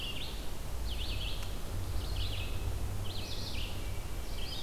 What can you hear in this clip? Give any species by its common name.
Red-eyed Vireo